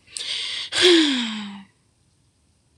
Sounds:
Sigh